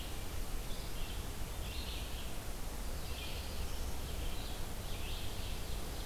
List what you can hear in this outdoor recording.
Red-eyed Vireo, Black-throated Blue Warbler, Ovenbird